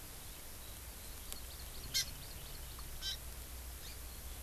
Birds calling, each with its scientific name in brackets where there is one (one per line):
Hawaii Amakihi (Chlorodrepanis virens)